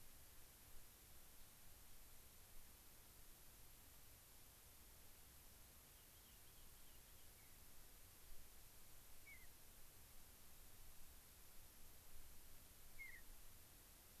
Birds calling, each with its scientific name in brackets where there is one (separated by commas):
Mountain Bluebird (Sialia currucoides), Rock Wren (Salpinctes obsoletus)